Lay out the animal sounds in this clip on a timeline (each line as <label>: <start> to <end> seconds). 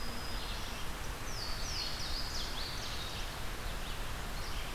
Black-throated Green Warbler (Setophaga virens): 0.0 to 0.9 seconds
Red-eyed Vireo (Vireo olivaceus): 0.0 to 4.7 seconds
Louisiana Waterthrush (Parkesia motacilla): 1.2 to 3.3 seconds